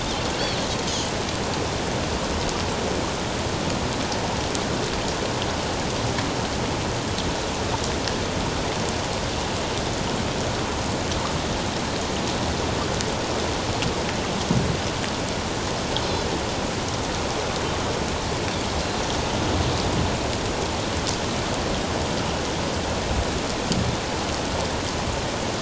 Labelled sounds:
16.0	16.3	Pacific white-sided dolphin, 3.9 to 4.2 kHz

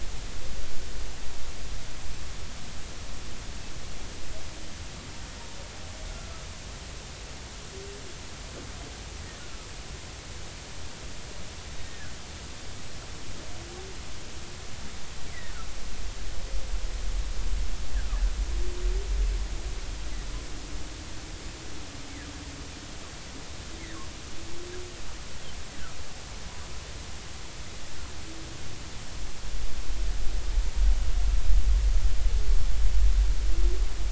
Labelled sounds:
11.8	12.1	humpback whale, 1.6 to 2.0 kHz

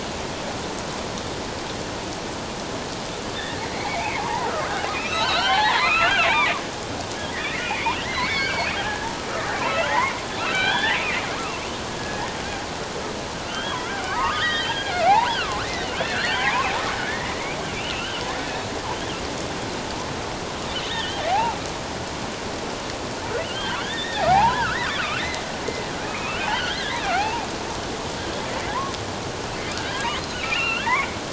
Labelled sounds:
3.7	6.6	killer whale, offshore, 0.78 to 4.7 kHz
7.3	9.1	killer whale, offshore, 1.2 to 5.1 kHz
9.5	11.0	killer whale, offshore, 1.4 to 4.1 kHz
11.3	12.4	killer whale, offshore, 1.0 to 1.9 kHz
13.4	15.7	killer whale, offshore, 0.78 to 4.9 kHz
16.0	16.8	killer whale, offshore, 0.78 to 3.4 kHz
17.1	18.2	killer whale, offshore, 1.7 to 3.2 kHz
20.9	21.6	killer whale, offshore, 0.78 to 3.8 kHz
23.4	25.4	killer whale, offshore, 0.78 to 4.8 kHz
26.0	27.5	killer whale, offshore, 0.78 to 3.6 kHz
29.7	30.1	killer whale, offshore, 1.3 to 1.8 kHz
30.4	31.2	killer whale, offshore, 1.3 to 3.5 kHz

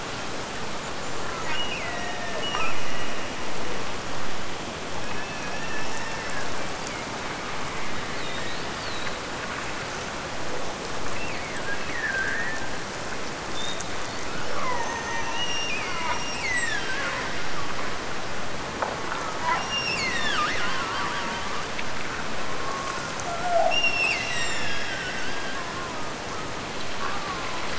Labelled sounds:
1.4	3.4	killer whale, Bigg's (transient), Gulf of Alaska transient, 1.6 to 3.0 kHz
11.1	12.7	killer whale, Bigg's (transient), Gulf of Alaska transient, 1.3 to 2.8 kHz
15.3	17.2	killer whale, Bigg's (transient), Gulf of Alaska transient, 1.4 to 8.0 kHz
19.6	21.7	killer whale, Bigg's (transient), Gulf of Alaska transient, 0.78 to 8.0 kHz
23.7	26.5	killer whale, Bigg's (transient), Gulf of Alaska transient, 0.86 to 8.0 kHz
26.9	27.7	killer whale, Bigg's (transient), Gulf of Alaska transient, 0.81 to 1.9 kHz

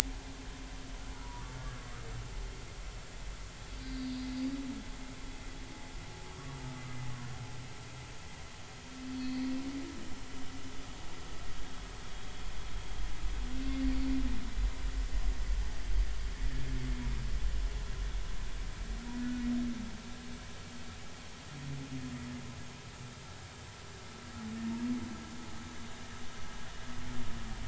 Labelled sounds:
3.7	4.3	humpback whale, 3.8 to 4.8 kHz
9.1	9.5	humpback whale, 4.2 to 4.6 kHz
19.2	19.4	humpback whale, 1.3 to 1.5 kHz

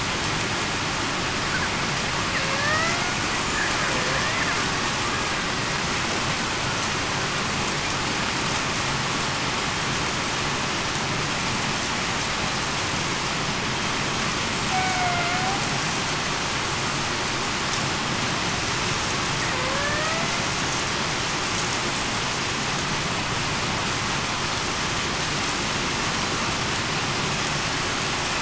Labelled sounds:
2.4	3.0	killer whale, Bigg's (transient), 0.52 to 2.1 kHz
14.7	15.6	killer whale, Bigg's (transient), 0.66 to 2.3 kHz
19.5	20.0	killer whale, Bigg's (transient), 0.49 to 0.63 kHz

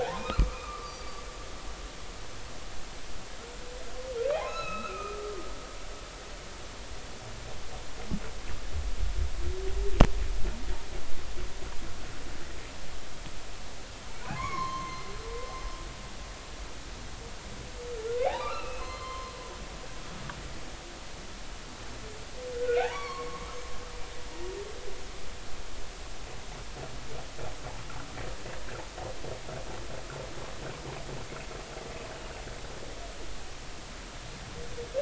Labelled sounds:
0.0	1.2	humpback whale, 0.80 to 4.8 kHz
4.3	5.6	humpback whale, 0.80 to 4.1 kHz
14.3	15.1	humpback whale, 0.96 to 4.3 kHz
18.3	19.3	humpback whale, 0.80 to 4.3 kHz
22.5	23.7	humpback whale, 0.80 to 6.5 kHz

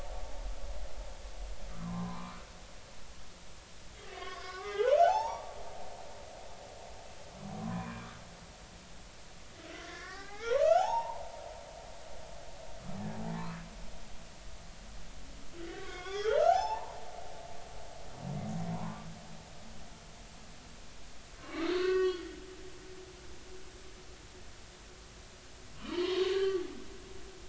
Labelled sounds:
1.7	2.5	humpback whale, 0.93 to 2.4 kHz
4.1	5.5	humpback whale, 0.80 to 5.9 kHz
7.6	8.1	humpback whale, 0.93 to 2.5 kHz
9.7	11.2	humpback whale, 0.80 to 5.6 kHz
15.6	17.0	humpback whale, 0.80 to 7.1 kHz
18.7	19.1	humpback whale, 0.90 to 1.2 kHz
21.4	22.3	humpback whale, 1.0 to 4.6 kHz
25.8	26.6	humpback whale, 0.90 to 4.4 kHz

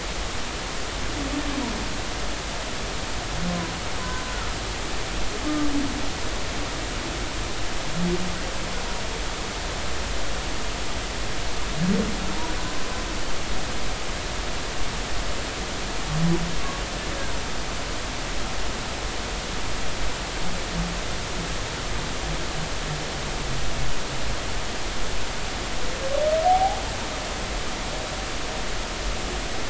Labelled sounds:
26.4	26.8	humpback whale, 0.80 to 0.90 kHz

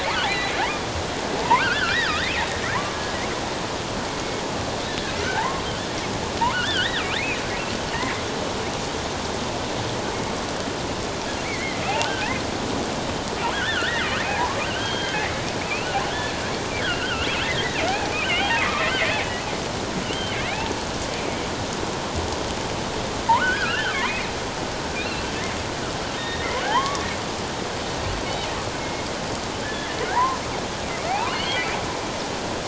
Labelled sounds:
0.3	0.5	killer whale, offshore, 1.8 to 2.1 kHz
1.4	2.2	killer whale, offshore, 0.84 to 3.5 kHz
5.2	5.7	killer whale, offshore, 0.78 to 2.2 kHz
6.5	7.0	killer whale, offshore, 1.2 to 4.0 kHz
11.4	12.4	killer whale, offshore, 1.4 to 2.9 kHz
13.5	16.0	killer whale, offshore, 0.78 to 3.8 kHz
16.8	19.1	killer whale, offshore, 0.78 to 3.3 kHz
20.0	20.7	killer whale, offshore, 1.6 to 3.2 kHz
23.4	24.3	killer whale, offshore, 0.94 to 3.5 kHz
25.0	25.2	killer whale, offshore, 3.6 to 4.3 kHz
26.2	27.0	killer whale, offshore, 0.78 to 3.8 kHz
28.8	30.4	killer whale, offshore, 0.78 to 2.2 kHz
31.1	31.8	killer whale, offshore, 0.78 to 3.3 kHz

